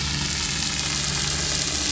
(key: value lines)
label: anthrophony, boat engine
recorder: SoundTrap 500